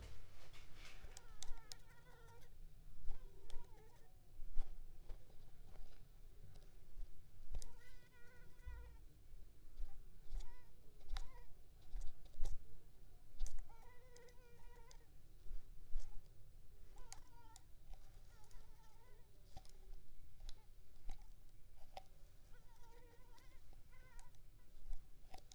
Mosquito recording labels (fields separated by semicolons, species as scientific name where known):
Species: Culex pipiens complex; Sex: female; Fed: unfed; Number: one; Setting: cup